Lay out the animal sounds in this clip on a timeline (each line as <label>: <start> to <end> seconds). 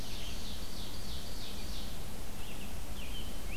Black-throated Blue Warbler (Setophaga caerulescens): 0.0 to 0.8 seconds
Ovenbird (Seiurus aurocapilla): 0.0 to 2.1 seconds
Red-eyed Vireo (Vireo olivaceus): 0.0 to 3.6 seconds